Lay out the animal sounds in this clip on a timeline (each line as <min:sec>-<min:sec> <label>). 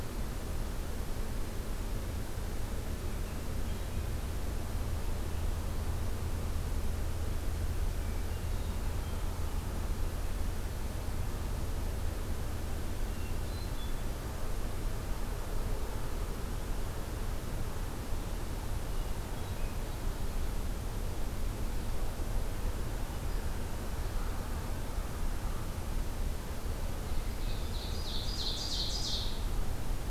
0:07.8-0:09.4 Hermit Thrush (Catharus guttatus)
0:12.9-0:14.0 Hermit Thrush (Catharus guttatus)
0:18.7-0:19.8 Hermit Thrush (Catharus guttatus)
0:27.1-0:29.4 Ovenbird (Seiurus aurocapilla)